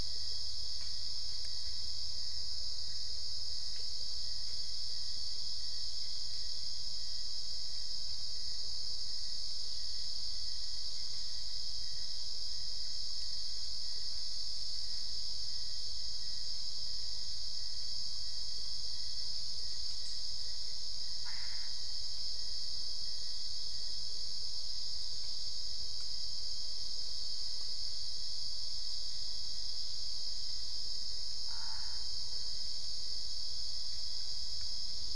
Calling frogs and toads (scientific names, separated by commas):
Boana albopunctata